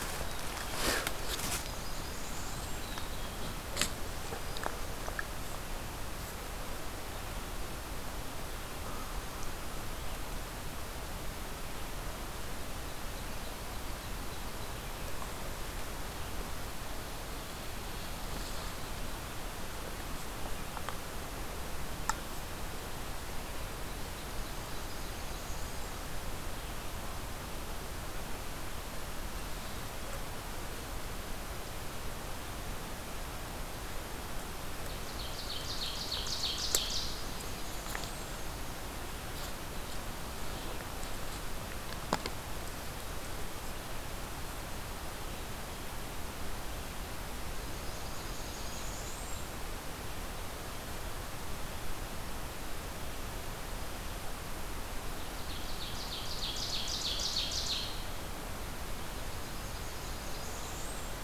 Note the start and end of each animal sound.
0.0s-1.1s: Black-capped Chickadee (Poecile atricapillus)
1.2s-2.9s: Blackburnian Warbler (Setophaga fusca)
2.6s-3.8s: Black-capped Chickadee (Poecile atricapillus)
12.6s-15.1s: Ovenbird (Seiurus aurocapilla)
23.7s-26.0s: Blackburnian Warbler (Setophaga fusca)
34.9s-37.3s: Ovenbird (Seiurus aurocapilla)
36.6s-38.6s: Blackburnian Warbler (Setophaga fusca)
47.4s-49.7s: Blackburnian Warbler (Setophaga fusca)
55.2s-58.2s: Ovenbird (Seiurus aurocapilla)
58.8s-61.2s: Blackburnian Warbler (Setophaga fusca)

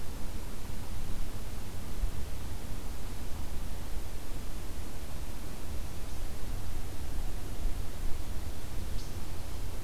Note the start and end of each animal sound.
8.7s-9.3s: Red Squirrel (Tamiasciurus hudsonicus)

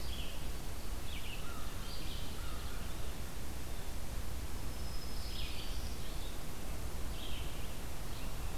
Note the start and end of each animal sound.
0.0s-8.6s: Red-eyed Vireo (Vireo olivaceus)
1.3s-2.7s: American Crow (Corvus brachyrhynchos)
4.5s-6.0s: Black-throated Green Warbler (Setophaga virens)

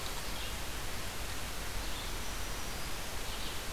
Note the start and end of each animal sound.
1.6s-3.5s: Black-throated Green Warbler (Setophaga virens)
2.9s-3.7s: Red-eyed Vireo (Vireo olivaceus)

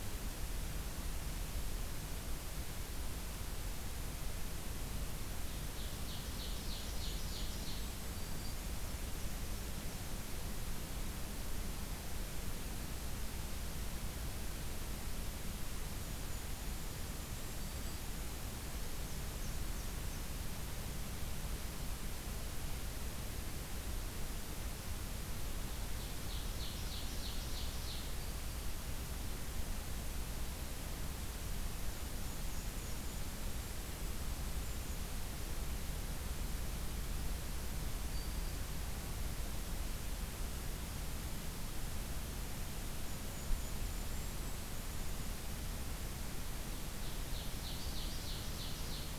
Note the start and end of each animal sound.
5.4s-8.0s: Ovenbird (Seiurus aurocapilla)
6.3s-8.2s: Golden-crowned Kinglet (Regulus satrapa)
8.0s-8.7s: Black-throated Green Warbler (Setophaga virens)
15.9s-18.1s: Golden-crowned Kinglet (Regulus satrapa)
17.4s-18.1s: Black-throated Green Warbler (Setophaga virens)
18.7s-20.3s: Black-and-white Warbler (Mniotilta varia)
25.7s-28.1s: Ovenbird (Seiurus aurocapilla)
28.1s-28.7s: Black-throated Green Warbler (Setophaga virens)
31.7s-33.1s: Black-and-white Warbler (Mniotilta varia)
31.8s-35.0s: Golden-crowned Kinglet (Regulus satrapa)
37.9s-38.6s: Black-throated Green Warbler (Setophaga virens)
42.9s-45.4s: Golden-crowned Kinglet (Regulus satrapa)
47.0s-49.2s: Ovenbird (Seiurus aurocapilla)

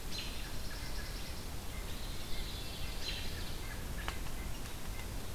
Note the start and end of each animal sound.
0.0s-0.3s: American Robin (Turdus migratorius)
0.1s-1.4s: Pine Warbler (Setophaga pinus)
0.9s-4.3s: White-breasted Nuthatch (Sitta carolinensis)
2.1s-3.1s: Ovenbird (Seiurus aurocapilla)
3.0s-3.2s: American Robin (Turdus migratorius)

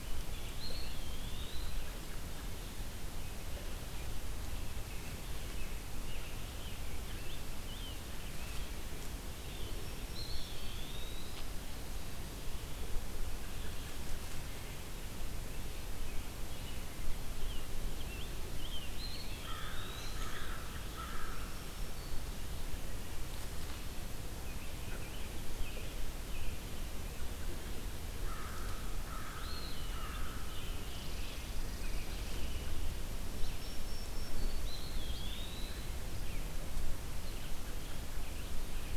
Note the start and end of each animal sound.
0.0s-0.9s: Scarlet Tanager (Piranga olivacea)
0.0s-12.8s: Red-eyed Vireo (Vireo olivaceus)
0.4s-2.0s: Eastern Wood-Pewee (Contopus virens)
5.8s-8.6s: Scarlet Tanager (Piranga olivacea)
10.0s-11.6s: Eastern Wood-Pewee (Contopus virens)
13.2s-14.4s: American Robin (Turdus migratorius)
15.4s-16.9s: American Robin (Turdus migratorius)
17.2s-19.8s: Scarlet Tanager (Piranga olivacea)
18.7s-21.0s: Eastern Wood-Pewee (Contopus virens)
19.1s-21.8s: American Crow (Corvus brachyrhynchos)
21.1s-22.4s: Black-throated Green Warbler (Setophaga virens)
24.4s-26.6s: American Robin (Turdus migratorius)
28.1s-31.1s: American Crow (Corvus brachyrhynchos)
29.2s-30.4s: Eastern Wood-Pewee (Contopus virens)
29.6s-31.5s: Scarlet Tanager (Piranga olivacea)
30.8s-33.1s: Red Squirrel (Tamiasciurus hudsonicus)
33.1s-34.9s: Black-throated Green Warbler (Setophaga virens)
34.5s-36.0s: Eastern Wood-Pewee (Contopus virens)

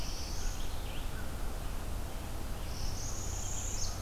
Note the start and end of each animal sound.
0.0s-0.7s: Black-throated Blue Warbler (Setophaga caerulescens)
0.0s-4.0s: Red-eyed Vireo (Vireo olivaceus)
2.5s-4.0s: Northern Parula (Setophaga americana)

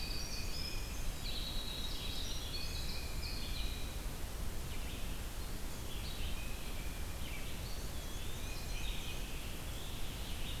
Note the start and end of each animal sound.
0.0s-4.2s: Winter Wren (Troglodytes hiemalis)
0.0s-10.6s: Red-eyed Vireo (Vireo olivaceus)
7.5s-9.3s: Black-and-white Warbler (Mniotilta varia)
7.5s-9.0s: Eastern Wood-Pewee (Contopus virens)

